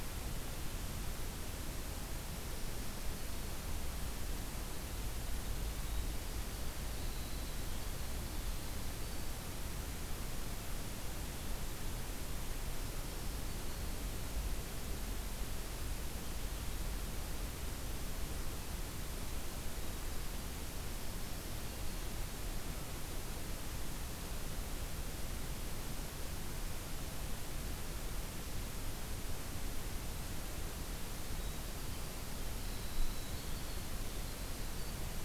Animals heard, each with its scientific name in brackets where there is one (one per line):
Winter Wren (Troglodytes hiemalis)